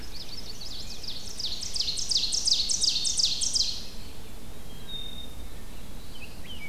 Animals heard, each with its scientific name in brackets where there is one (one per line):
Black-throated Blue Warbler (Setophaga caerulescens)
Chestnut-sided Warbler (Setophaga pensylvanica)
Black-capped Chickadee (Poecile atricapillus)
Rose-breasted Grosbeak (Pheucticus ludovicianus)
Ovenbird (Seiurus aurocapilla)